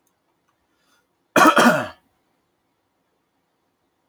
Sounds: Cough